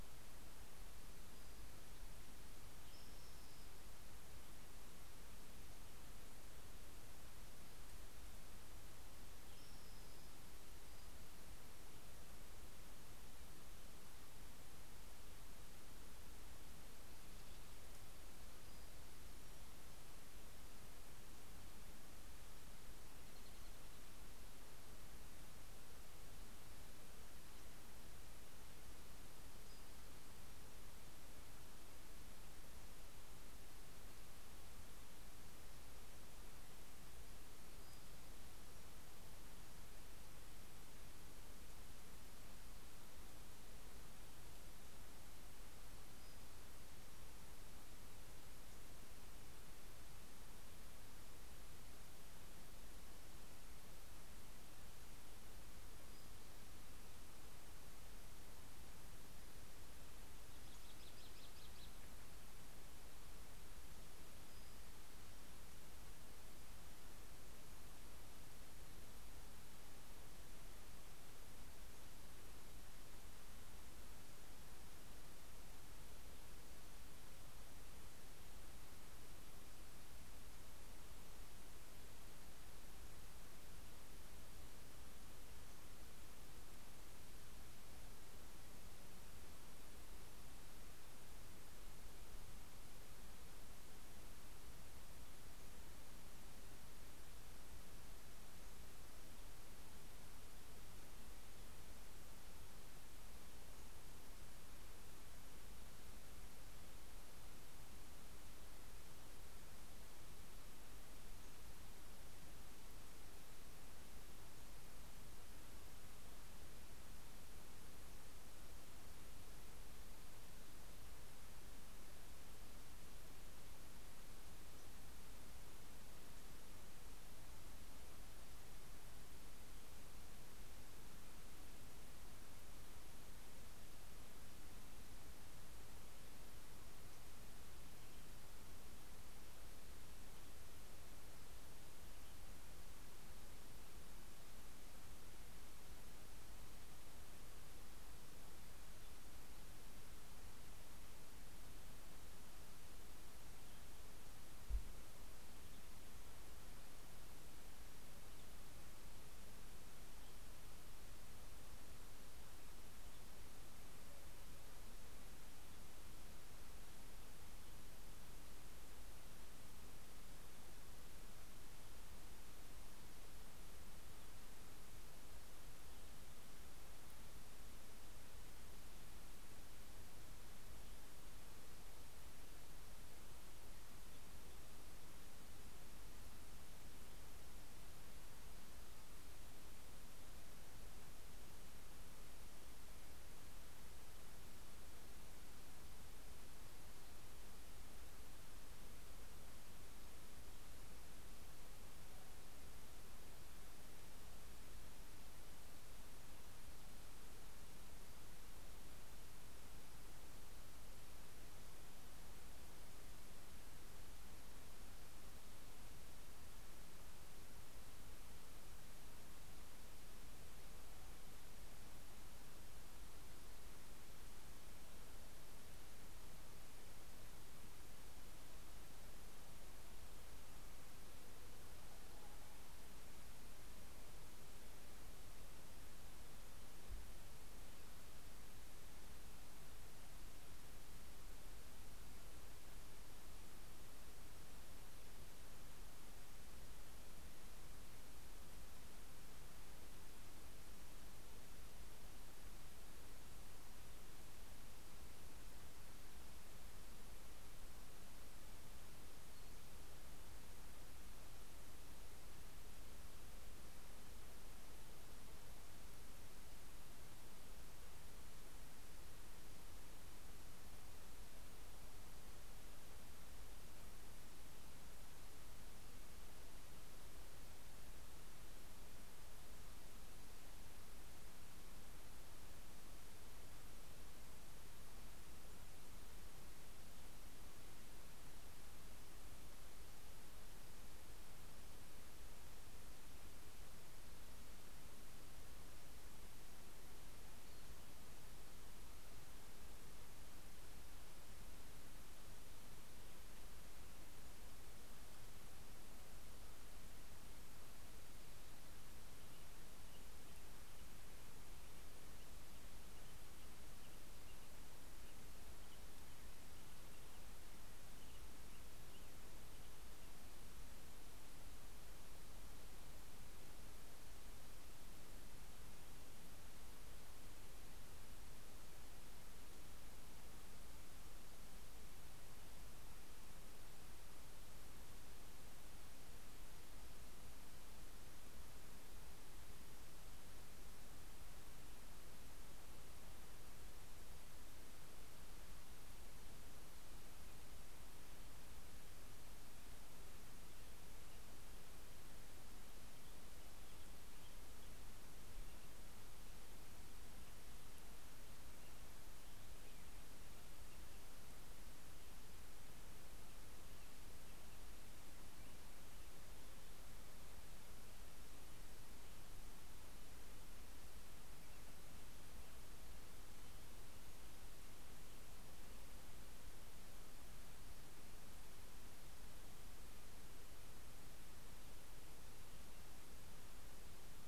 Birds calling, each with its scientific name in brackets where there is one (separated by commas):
Spotted Towhee (Pipilo maculatus), American Robin (Turdus migratorius)